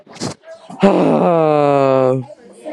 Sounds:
Sigh